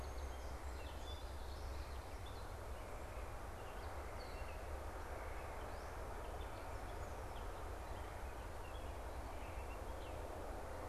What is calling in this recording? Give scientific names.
Melospiza melodia, Dumetella carolinensis